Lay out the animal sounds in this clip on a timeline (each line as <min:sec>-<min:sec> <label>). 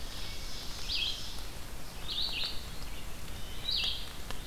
0:00.0-0:01.4 Ovenbird (Seiurus aurocapilla)
0:00.0-0:04.5 Red-eyed Vireo (Vireo olivaceus)
0:02.9-0:03.7 Wood Thrush (Hylocichla mustelina)